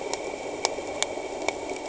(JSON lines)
{"label": "anthrophony, boat engine", "recorder": "HydroMoth"}